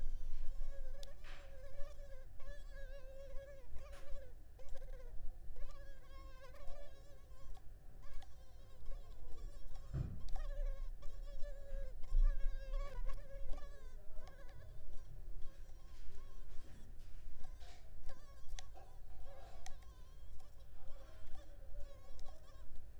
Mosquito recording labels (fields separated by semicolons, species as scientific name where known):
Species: Culex pipiens complex; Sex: female; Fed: unfed; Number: one; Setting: cup